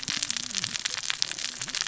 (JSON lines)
{"label": "biophony, cascading saw", "recorder": "SoundTrap 600 or HydroMoth"}